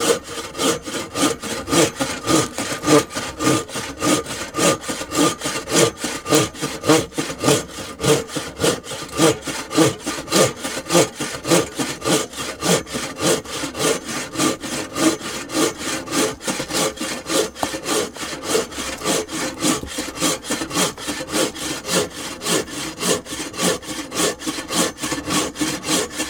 Can one perform this activity without any tools?
no